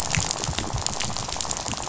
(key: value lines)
label: biophony, rattle
recorder: SoundTrap 500